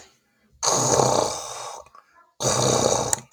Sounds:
Sneeze